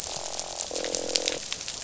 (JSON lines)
{"label": "biophony, croak", "recorder": "SoundTrap 500"}